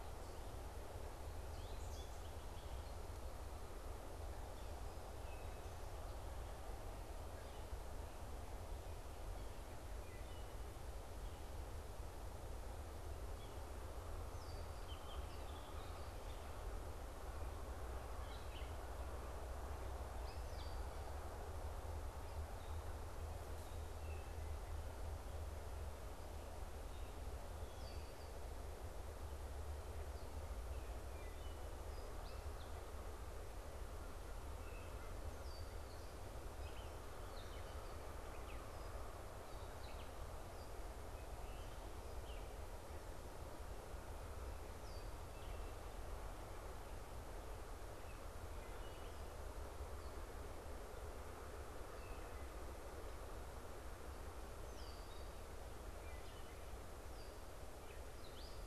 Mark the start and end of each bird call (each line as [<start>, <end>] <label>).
[1.33, 3.03] unidentified bird
[9.83, 10.63] Wood Thrush (Hylocichla mustelina)
[13.23, 13.63] Yellow-bellied Sapsucker (Sphyrapicus varius)
[14.23, 14.73] Red-winged Blackbird (Agelaius phoeniceus)
[14.73, 21.63] Gray Catbird (Dumetella carolinensis)
[30.93, 31.53] Wood Thrush (Hylocichla mustelina)
[33.83, 35.63] American Crow (Corvus brachyrhynchos)
[34.93, 42.83] unidentified bird
[48.53, 52.63] Wood Thrush (Hylocichla mustelina)
[54.43, 58.63] unidentified bird
[55.93, 56.63] Wood Thrush (Hylocichla mustelina)